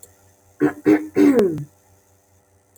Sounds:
Throat clearing